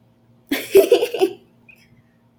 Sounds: Laughter